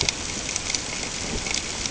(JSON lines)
{"label": "ambient", "recorder": "HydroMoth"}